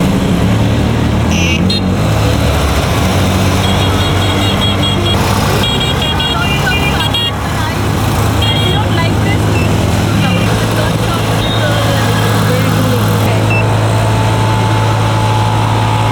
is a woman speaking ever?
yes